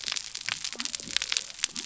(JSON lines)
{"label": "biophony", "recorder": "SoundTrap 300"}